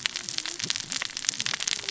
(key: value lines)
label: biophony, cascading saw
recorder: SoundTrap 600 or HydroMoth